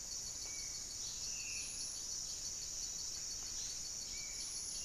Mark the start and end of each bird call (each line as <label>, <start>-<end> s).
Buff-breasted Wren (Cantorchilus leucotis), 0.0-4.8 s
Spot-winged Antshrike (Pygiptila stellaris), 0.0-4.8 s
Black-spotted Bare-eye (Phlegopsis nigromaculata), 1.0-4.8 s